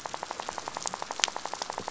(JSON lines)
{"label": "biophony, rattle", "recorder": "SoundTrap 500"}